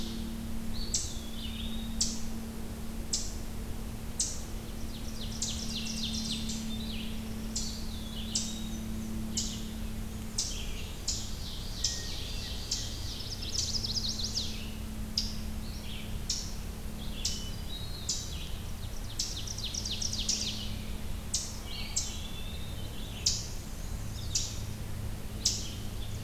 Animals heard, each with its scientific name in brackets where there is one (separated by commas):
Ovenbird (Seiurus aurocapilla), Red-eyed Vireo (Vireo olivaceus), Eastern Wood-Pewee (Contopus virens), Chestnut-sided Warbler (Setophaga pensylvanica), Eastern Chipmunk (Tamias striatus), Black-and-white Warbler (Mniotilta varia)